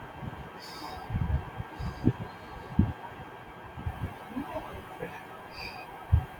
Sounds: Sigh